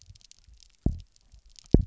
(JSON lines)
{"label": "biophony, double pulse", "recorder": "SoundTrap 300"}